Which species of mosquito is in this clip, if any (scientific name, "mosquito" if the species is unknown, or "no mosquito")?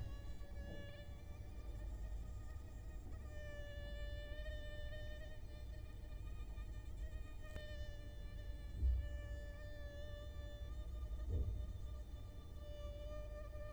Culex quinquefasciatus